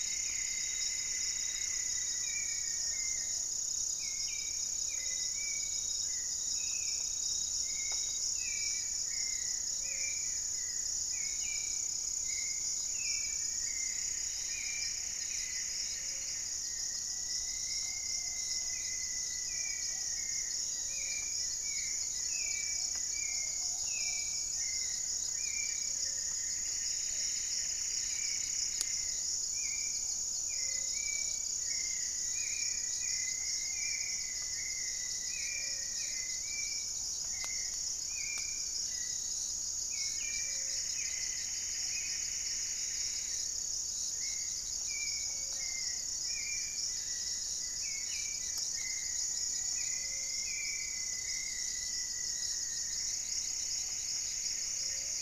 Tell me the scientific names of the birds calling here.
Myrmelastes hyperythrus, Campylorhynchus turdinus, Formicarius rufifrons, Leptotila rufaxilla, Patagioenas plumbea, Turdus hauxwelli, Akletos goeldii, unidentified bird